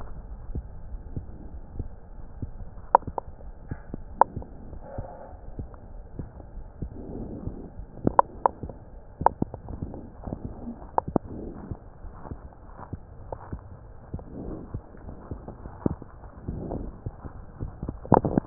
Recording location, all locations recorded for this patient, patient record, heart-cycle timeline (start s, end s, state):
aortic valve (AV)
aortic valve (AV)+pulmonary valve (PV)+tricuspid valve (TV)+mitral valve (MV)
#Age: Child
#Sex: Male
#Height: 122.0 cm
#Weight: 23.8 kg
#Pregnancy status: False
#Murmur: Absent
#Murmur locations: nan
#Most audible location: nan
#Systolic murmur timing: nan
#Systolic murmur shape: nan
#Systolic murmur grading: nan
#Systolic murmur pitch: nan
#Systolic murmur quality: nan
#Diastolic murmur timing: nan
#Diastolic murmur shape: nan
#Diastolic murmur grading: nan
#Diastolic murmur pitch: nan
#Diastolic murmur quality: nan
#Outcome: Normal
#Campaign: 2015 screening campaign
0.00	0.78	unannotated
0.78	0.92	S1
0.92	1.14	systole
1.14	1.24	S2
1.24	1.40	diastole
1.40	1.54	S1
1.54	1.76	systole
1.76	1.87	S2
1.87	2.17	diastole
2.17	2.30	S1
2.30	2.42	systole
2.42	2.52	S2
2.52	2.75	diastole
2.75	2.90	S1
2.90	3.04	systole
3.04	3.16	S2
3.16	3.44	diastole
3.44	3.54	S1
3.54	3.69	systole
3.69	3.80	S2
3.80	4.10	diastole
4.10	4.20	S1
4.20	4.34	systole
4.34	4.44	S2
4.44	4.70	diastole
4.70	4.82	S1
4.82	4.96	systole
4.96	5.06	S2
5.06	5.34	diastole
5.34	5.40	S1
5.41	5.56	systole
5.56	5.68	S2
5.68	5.92	diastole
5.92	6.04	S1
6.04	6.18	systole
6.18	6.28	S2
6.28	6.56	diastole
6.56	6.70	S1
6.70	6.80	systole
6.80	6.90	S2
6.90	7.14	diastole
7.14	7.27	S1
7.27	7.43	systole
7.43	7.56	S2
7.56	7.77	diastole
7.77	18.46	unannotated